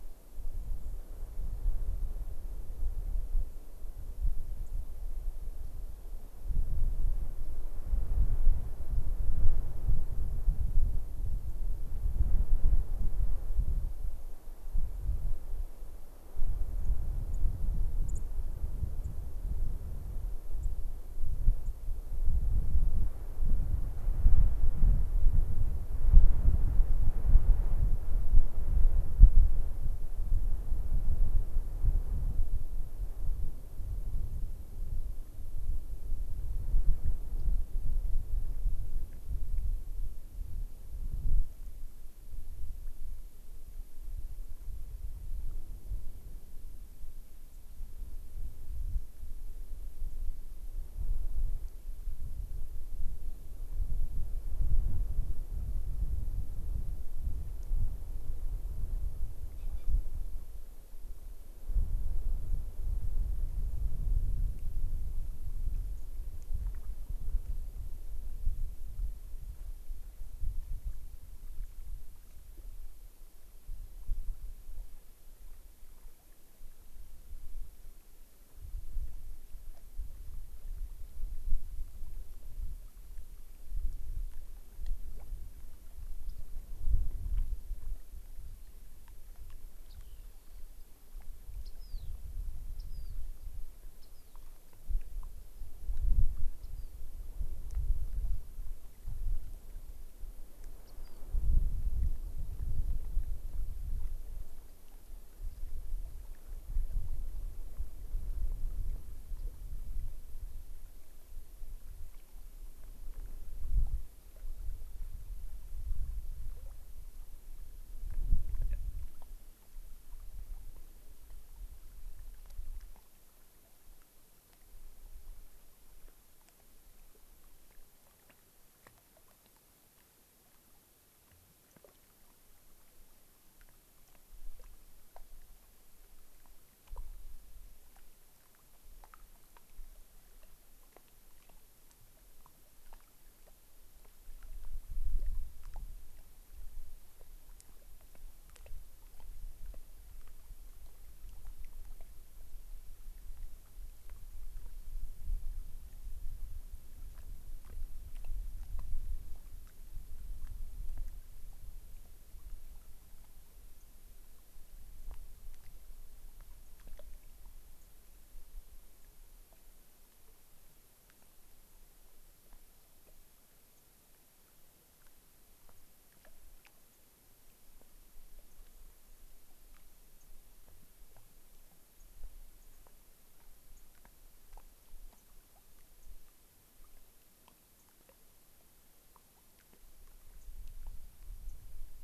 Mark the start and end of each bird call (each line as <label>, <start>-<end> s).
White-crowned Sparrow (Zonotrichia leucophrys), 0.7-1.1 s
White-crowned Sparrow (Zonotrichia leucophrys), 4.6-4.7 s
White-crowned Sparrow (Zonotrichia leucophrys), 11.4-11.6 s
White-crowned Sparrow (Zonotrichia leucophrys), 16.7-16.9 s
White-crowned Sparrow (Zonotrichia leucophrys), 17.3-17.4 s
White-crowned Sparrow (Zonotrichia leucophrys), 18.0-18.2 s
White-crowned Sparrow (Zonotrichia leucophrys), 19.0-19.1 s
White-crowned Sparrow (Zonotrichia leucophrys), 20.6-20.7 s
White-crowned Sparrow (Zonotrichia leucophrys), 21.6-21.7 s
White-crowned Sparrow (Zonotrichia leucophrys), 30.2-30.4 s
White-crowned Sparrow (Zonotrichia leucophrys), 47.5-47.6 s
White-crowned Sparrow (Zonotrichia leucophrys), 65.9-66.1 s
Yellow-rumped Warbler (Setophaga coronata), 86.2-86.4 s
Rock Wren (Salpinctes obsoletus), 89.8-90.6 s
Rock Wren (Salpinctes obsoletus), 91.5-94.4 s
Rock Wren (Salpinctes obsoletus), 96.5-96.9 s
Rock Wren (Salpinctes obsoletus), 100.8-101.2 s
White-crowned Sparrow (Zonotrichia leucophrys), 167.8-167.9 s
White-crowned Sparrow (Zonotrichia leucophrys), 173.7-173.8 s
White-crowned Sparrow (Zonotrichia leucophrys), 175.7-175.8 s
White-crowned Sparrow (Zonotrichia leucophrys), 176.9-177.0 s
White-crowned Sparrow (Zonotrichia leucophrys), 178.5-178.6 s
White-crowned Sparrow (Zonotrichia leucophrys), 180.1-180.3 s
White-crowned Sparrow (Zonotrichia leucophrys), 181.9-182.1 s
White-crowned Sparrow (Zonotrichia leucophrys), 182.6-182.8 s
White-crowned Sparrow (Zonotrichia leucophrys), 183.7-183.8 s
White-crowned Sparrow (Zonotrichia leucophrys), 185.1-185.2 s
White-crowned Sparrow (Zonotrichia leucophrys), 185.9-186.1 s
White-crowned Sparrow (Zonotrichia leucophrys), 187.7-187.9 s
White-crowned Sparrow (Zonotrichia leucophrys), 190.3-190.5 s
White-crowned Sparrow (Zonotrichia leucophrys), 191.4-191.6 s